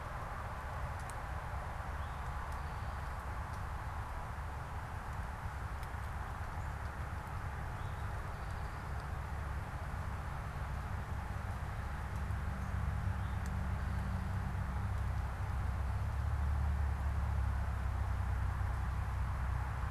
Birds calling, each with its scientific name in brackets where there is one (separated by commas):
Eastern Towhee (Pipilo erythrophthalmus)